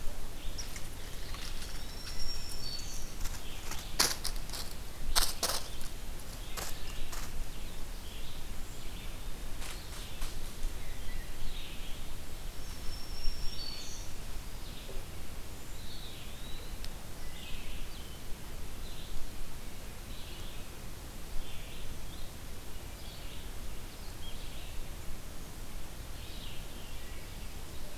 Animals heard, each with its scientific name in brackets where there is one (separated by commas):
Eastern Wood-Pewee (Contopus virens), Wood Thrush (Hylocichla mustelina), Black-throated Green Warbler (Setophaga virens), Red-eyed Vireo (Vireo olivaceus)